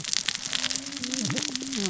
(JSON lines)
{"label": "biophony, cascading saw", "recorder": "SoundTrap 600 or HydroMoth"}